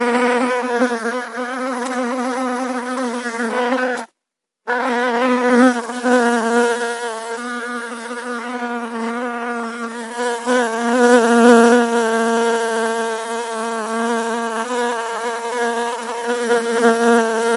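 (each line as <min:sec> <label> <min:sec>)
0:00.0 A bee buzzes with a consistent, low humming sound. 0:04.1
0:04.7 A bee buzzes loudly with a consistent, low humming sound while hovering nearby. 0:17.6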